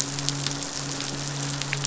{"label": "biophony, midshipman", "recorder": "SoundTrap 500"}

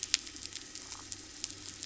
{"label": "anthrophony, boat engine", "recorder": "SoundTrap 300"}
{"label": "biophony", "recorder": "SoundTrap 300"}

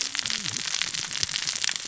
{"label": "biophony, cascading saw", "recorder": "SoundTrap 600 or HydroMoth"}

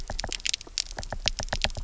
{"label": "biophony, knock", "recorder": "SoundTrap 300"}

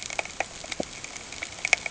{"label": "ambient", "recorder": "HydroMoth"}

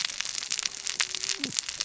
{"label": "biophony, cascading saw", "recorder": "SoundTrap 600 or HydroMoth"}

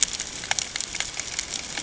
{"label": "ambient", "recorder": "HydroMoth"}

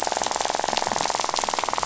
{"label": "biophony, rattle", "recorder": "SoundTrap 500"}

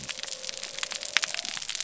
{"label": "biophony", "recorder": "SoundTrap 300"}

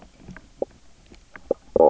{"label": "biophony, knock croak", "recorder": "SoundTrap 300"}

